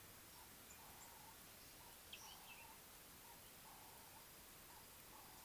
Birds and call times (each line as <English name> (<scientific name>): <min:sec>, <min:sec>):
Ring-necked Dove (Streptopelia capicola): 0:03.9